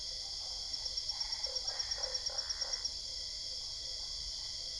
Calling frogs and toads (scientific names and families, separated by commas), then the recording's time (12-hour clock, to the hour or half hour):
Boana albopunctata (Hylidae), Boana lundii (Hylidae)
~10pm